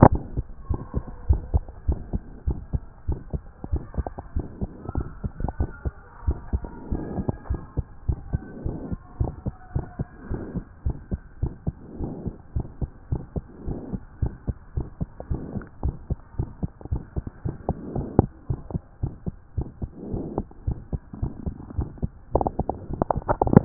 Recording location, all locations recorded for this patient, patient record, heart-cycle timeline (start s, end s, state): aortic valve (AV)
aortic valve (AV)+pulmonary valve (PV)+tricuspid valve (TV)+mitral valve (MV)
#Age: Child
#Sex: Female
#Height: 119.0 cm
#Weight: 26.5 kg
#Pregnancy status: False
#Murmur: Present
#Murmur locations: mitral valve (MV)+pulmonary valve (PV)
#Most audible location: mitral valve (MV)
#Systolic murmur timing: Early-systolic
#Systolic murmur shape: Decrescendo
#Systolic murmur grading: I/VI
#Systolic murmur pitch: Low
#Systolic murmur quality: Blowing
#Diastolic murmur timing: nan
#Diastolic murmur shape: nan
#Diastolic murmur grading: nan
#Diastolic murmur pitch: nan
#Diastolic murmur quality: nan
#Outcome: Abnormal
#Campaign: 2014 screening campaign
0.00	0.94	unannotated
0.94	1.04	S2
1.04	1.28	diastole
1.28	1.42	S1
1.42	1.52	systole
1.52	1.62	S2
1.62	1.88	diastole
1.88	2.00	S1
2.00	2.12	systole
2.12	2.22	S2
2.22	2.46	diastole
2.46	2.58	S1
2.58	2.72	systole
2.72	2.82	S2
2.82	3.08	diastole
3.08	3.20	S1
3.20	3.32	systole
3.32	3.42	S2
3.42	3.72	diastole
3.72	3.82	S1
3.82	3.96	systole
3.96	4.06	S2
4.06	4.34	diastole
4.34	4.46	S1
4.46	4.60	systole
4.60	4.70	S2
4.70	4.96	diastole
4.96	5.06	S1
5.06	5.22	systole
5.22	5.30	S2
5.30	5.58	diastole
5.58	5.70	S1
5.70	5.84	systole
5.84	5.92	S2
5.92	6.26	diastole
6.26	6.38	S1
6.38	6.52	systole
6.52	6.62	S2
6.62	6.90	diastole
6.90	7.04	S1
7.04	7.16	systole
7.16	7.26	S2
7.26	7.50	diastole
7.50	7.60	S1
7.60	7.76	systole
7.76	7.86	S2
7.86	8.08	diastole
8.08	8.18	S1
8.18	8.32	systole
8.32	8.42	S2
8.42	8.64	diastole
8.64	8.78	S1
8.78	8.90	systole
8.90	8.98	S2
8.98	9.20	diastole
9.20	9.32	S1
9.32	9.46	systole
9.46	9.54	S2
9.54	9.74	diastole
9.74	9.86	S1
9.86	9.98	systole
9.98	10.08	S2
10.08	10.30	diastole
10.30	10.42	S1
10.42	10.54	systole
10.54	10.64	S2
10.64	10.84	diastole
10.84	10.96	S1
10.96	11.10	systole
11.10	11.20	S2
11.20	11.42	diastole
11.42	11.52	S1
11.52	11.66	systole
11.66	11.74	S2
11.74	12.00	diastole
12.00	12.12	S1
12.12	12.24	systole
12.24	12.34	S2
12.34	12.54	diastole
12.54	12.66	S1
12.66	12.80	systole
12.80	12.90	S2
12.90	13.10	diastole
13.10	13.22	S1
13.22	13.34	systole
13.34	13.44	S2
13.44	13.66	diastole
13.66	13.78	S1
13.78	13.92	systole
13.92	14.00	S2
14.00	14.20	diastole
14.20	14.32	S1
14.32	14.46	systole
14.46	14.56	S2
14.56	14.76	diastole
14.76	14.88	S1
14.88	15.00	systole
15.00	15.08	S2
15.08	15.30	diastole
15.30	15.42	S1
15.42	15.54	systole
15.54	15.64	S2
15.64	15.84	diastole
15.84	15.96	S1
15.96	16.10	systole
16.10	16.18	S2
16.18	16.38	diastole
16.38	16.50	S1
16.50	16.62	systole
16.62	16.70	S2
16.70	16.90	diastole
16.90	17.02	S1
17.02	17.16	systole
17.16	17.26	S2
17.26	17.46	diastole
17.46	17.56	S1
17.56	17.68	systole
17.68	17.76	S2
17.76	17.94	diastole
17.94	18.08	S1
18.08	18.18	systole
18.18	18.30	S2
18.30	18.50	diastole
18.50	18.60	S1
18.60	18.72	systole
18.72	18.82	S2
18.82	19.02	diastole
19.02	19.14	S1
19.14	19.26	systole
19.26	19.34	S2
19.34	19.56	diastole
19.56	19.68	S1
19.68	19.82	systole
19.82	19.90	S2
19.90	20.12	diastole
20.12	20.24	S1
20.24	20.36	systole
20.36	20.46	S2
20.46	20.66	diastole
20.66	20.78	S1
20.78	20.92	systole
20.92	21.00	S2
21.00	21.11	diastole
21.11	23.65	unannotated